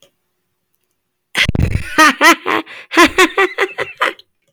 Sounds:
Laughter